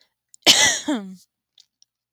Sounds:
Throat clearing